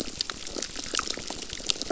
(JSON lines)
{"label": "biophony, crackle", "recorder": "SoundTrap 600"}